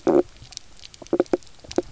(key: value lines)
label: biophony
recorder: SoundTrap 300